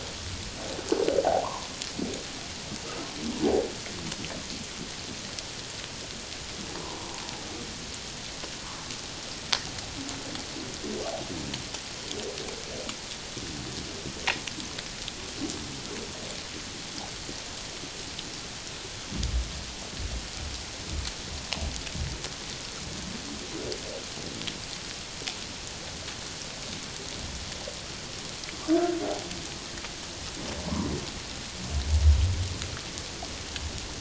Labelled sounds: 1.2	1.7	humpback whale, 0.78 to 1.2 kHz
6.7	7.2	humpback whale, 0.78 to 1.2 kHz

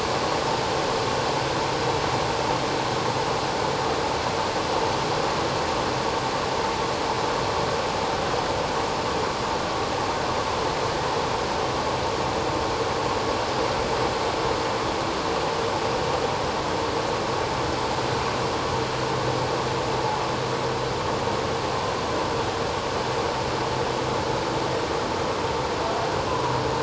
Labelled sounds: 26.3	26.6	humpback whale, 0.94 to 1.2 kHz

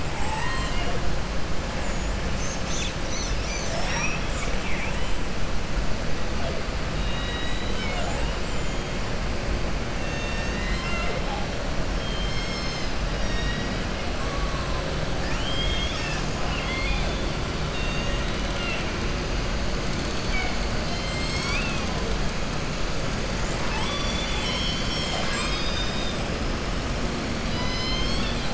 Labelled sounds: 0.0	1.0	killer whale, southern resident, 0.50 to 8.0 kHz
6.9	8.3	killer whale, southern resident, 0.68 to 8.0 kHz
13.1	13.8	killer whale, southern resident, 1.9 to 7.5 kHz
15.2	17.2	killer whale, southern resident, 1.3 to 7.8 kHz
17.6	18.9	killer whale, southern resident, 1.4 to 4.6 kHz
27.4	28.5	killer whale, southern resident, 1.8 to 6.6 kHz

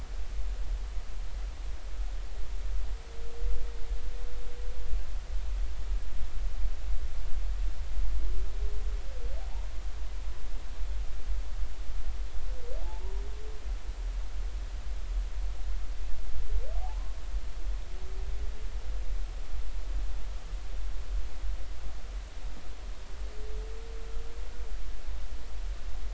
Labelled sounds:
12.8	13.1	humpback whale, 0.80 to 0.99 kHz

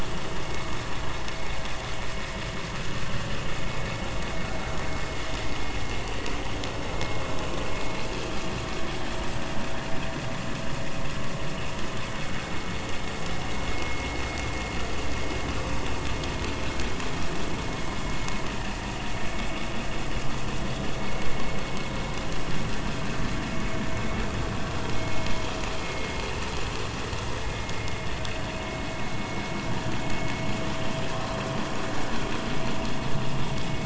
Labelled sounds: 25.8	26.1	vessel noise, 2.1 to 2.2 kHz

